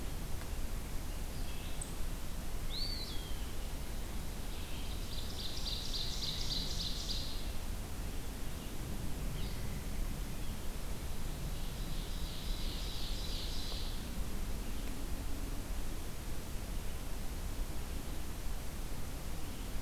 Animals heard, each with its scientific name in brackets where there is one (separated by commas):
Eastern Wood-Pewee (Contopus virens), Red-eyed Vireo (Vireo olivaceus), Ovenbird (Seiurus aurocapilla)